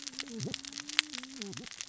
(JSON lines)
{"label": "biophony, cascading saw", "recorder": "SoundTrap 600 or HydroMoth"}